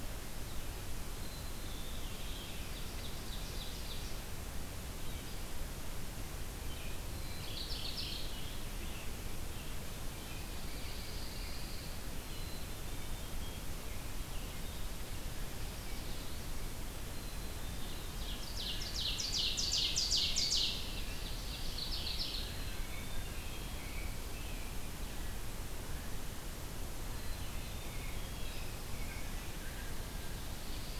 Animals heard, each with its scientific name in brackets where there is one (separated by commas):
Mourning Warbler (Geothlypis philadelphia), Pine Warbler (Setophaga pinus), American Robin (Turdus migratorius), Scarlet Tanager (Piranga olivacea), Black-capped Chickadee (Poecile atricapillus), Ovenbird (Seiurus aurocapilla)